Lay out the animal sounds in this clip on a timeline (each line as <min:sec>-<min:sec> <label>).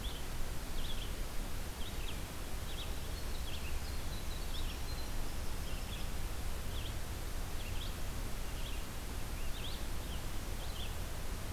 0:00.0-0:11.5 Red-eyed Vireo (Vireo olivaceus)
0:03.0-0:06.2 Winter Wren (Troglodytes hiemalis)